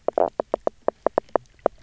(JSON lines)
{"label": "biophony, knock croak", "recorder": "SoundTrap 300"}